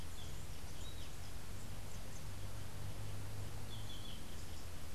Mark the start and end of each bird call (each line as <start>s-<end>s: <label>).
3.6s-4.4s: Yellow-throated Euphonia (Euphonia hirundinacea)